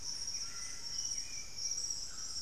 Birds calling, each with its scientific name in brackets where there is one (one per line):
Hauxwell's Thrush (Turdus hauxwelli)
Buff-breasted Wren (Cantorchilus leucotis)
Thrush-like Wren (Campylorhynchus turdinus)
White-throated Toucan (Ramphastos tucanus)
Golden-crowned Spadebill (Platyrinchus coronatus)